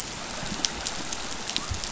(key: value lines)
label: biophony
recorder: SoundTrap 500